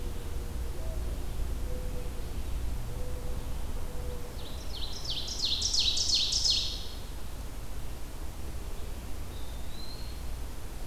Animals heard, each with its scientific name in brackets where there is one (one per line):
Mourning Dove (Zenaida macroura)
Eastern Wood-Pewee (Contopus virens)
Ovenbird (Seiurus aurocapilla)